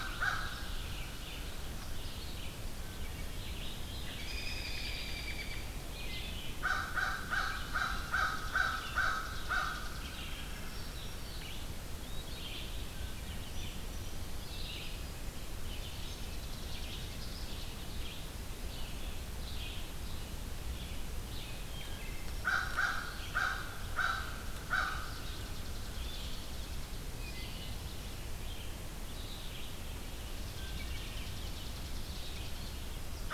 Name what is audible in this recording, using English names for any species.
American Crow, Red-eyed Vireo, American Robin, Wood Thrush, Chipping Sparrow, Black-throated Green Warbler